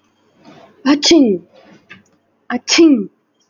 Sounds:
Sneeze